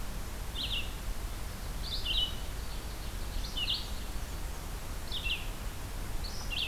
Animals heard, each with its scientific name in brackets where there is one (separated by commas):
Red-eyed Vireo (Vireo olivaceus), Ovenbird (Seiurus aurocapilla)